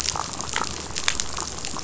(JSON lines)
{"label": "biophony, damselfish", "recorder": "SoundTrap 500"}